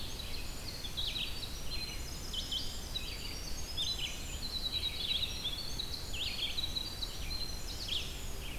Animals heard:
Black-throated Blue Warbler (Setophaga caerulescens), Red-eyed Vireo (Vireo olivaceus), Winter Wren (Troglodytes hiemalis)

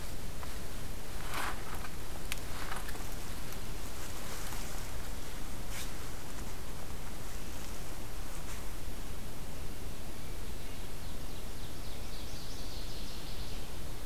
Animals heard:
Northern Waterthrush (Parkesia noveboracensis), Ovenbird (Seiurus aurocapilla)

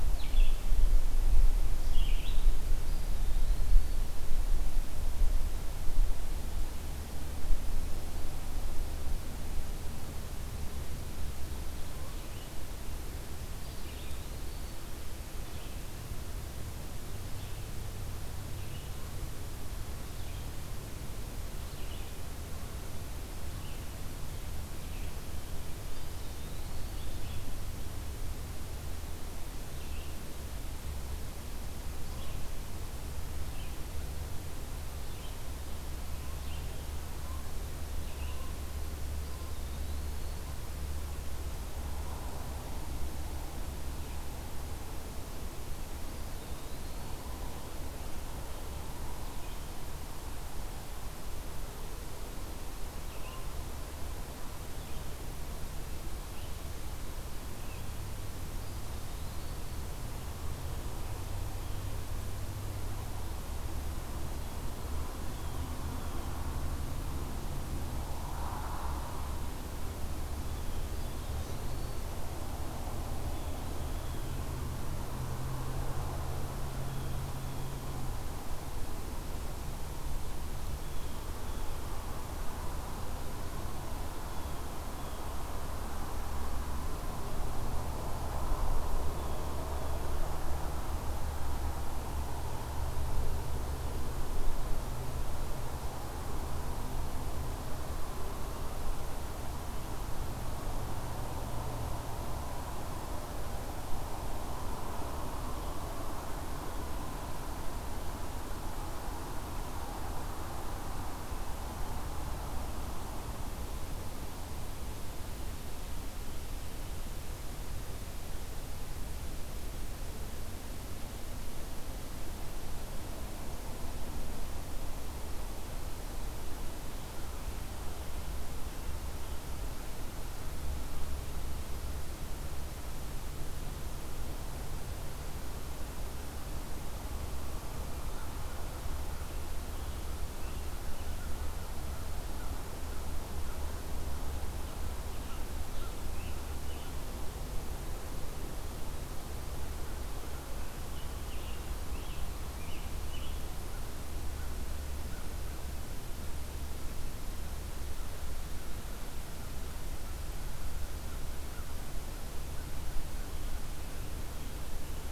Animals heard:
Canada Goose (Branta canadensis), American Crow (Corvus brachyrhynchos), Eastern Wood-Pewee (Contopus virens), Blue Jay (Cyanocitta cristata), Red-eyed Vireo (Vireo olivaceus), Scarlet Tanager (Piranga olivacea)

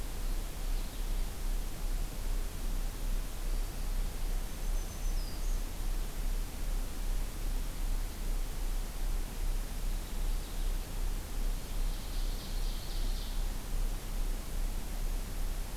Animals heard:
Ovenbird (Seiurus aurocapilla), Black-throated Green Warbler (Setophaga virens), Purple Finch (Haemorhous purpureus)

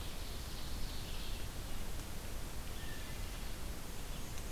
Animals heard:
Ovenbird (Seiurus aurocapilla), Red-eyed Vireo (Vireo olivaceus), Wood Thrush (Hylocichla mustelina), Black-and-white Warbler (Mniotilta varia)

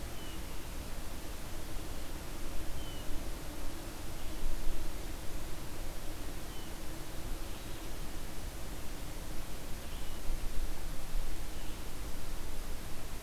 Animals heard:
Red-eyed Vireo (Vireo olivaceus), Blue Jay (Cyanocitta cristata)

